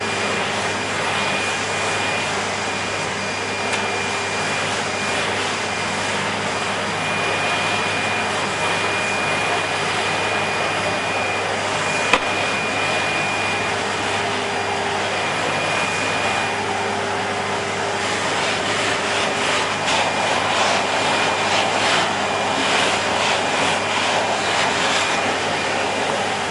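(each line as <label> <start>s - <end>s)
A vacuum cleaner is pushed back and forth over a carpet, producing a continuous, low-pitched humming sound with slight variations in intensity. 0.0s - 26.5s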